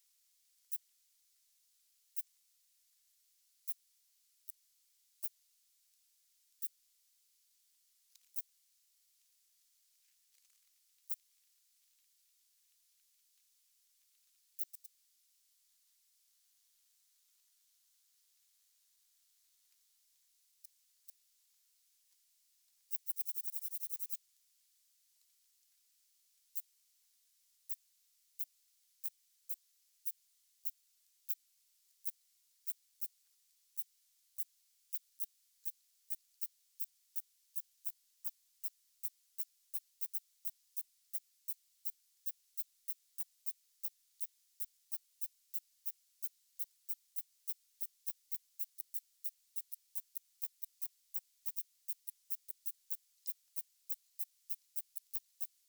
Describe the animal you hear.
Phaneroptera falcata, an orthopteran